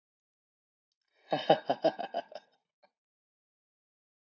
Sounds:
Laughter